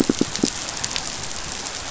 {"label": "biophony, pulse", "recorder": "SoundTrap 500"}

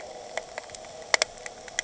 {"label": "anthrophony, boat engine", "recorder": "HydroMoth"}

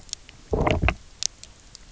{"label": "biophony, low growl", "recorder": "SoundTrap 300"}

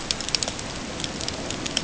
{"label": "ambient", "recorder": "HydroMoth"}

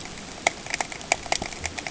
{"label": "ambient", "recorder": "HydroMoth"}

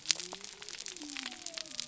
{"label": "biophony", "recorder": "SoundTrap 300"}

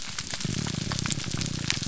{"label": "biophony, grouper groan", "recorder": "SoundTrap 300"}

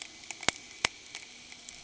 {"label": "anthrophony, boat engine", "recorder": "HydroMoth"}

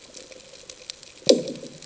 {"label": "anthrophony, bomb", "recorder": "HydroMoth"}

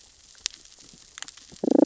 {"label": "biophony, damselfish", "recorder": "SoundTrap 600 or HydroMoth"}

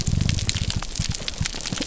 {"label": "biophony", "recorder": "SoundTrap 300"}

